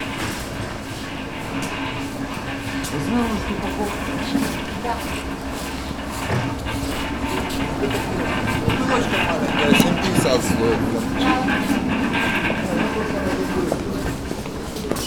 Are there animals barking?
no